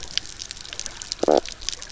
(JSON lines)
{"label": "biophony, stridulation", "recorder": "SoundTrap 300"}